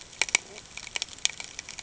{"label": "ambient", "recorder": "HydroMoth"}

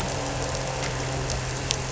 {"label": "anthrophony, boat engine", "recorder": "SoundTrap 300"}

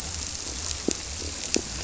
{"label": "biophony, squirrelfish (Holocentrus)", "recorder": "SoundTrap 300"}
{"label": "biophony", "recorder": "SoundTrap 300"}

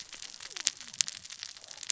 {"label": "biophony, cascading saw", "recorder": "SoundTrap 600 or HydroMoth"}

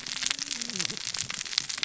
{"label": "biophony, cascading saw", "recorder": "SoundTrap 600 or HydroMoth"}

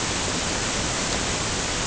{"label": "ambient", "recorder": "HydroMoth"}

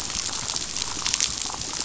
{"label": "biophony, damselfish", "recorder": "SoundTrap 500"}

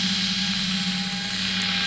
{"label": "anthrophony, boat engine", "recorder": "SoundTrap 500"}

